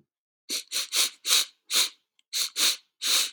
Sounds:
Sniff